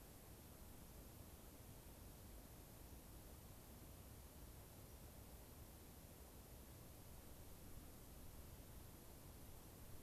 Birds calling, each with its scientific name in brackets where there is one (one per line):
unidentified bird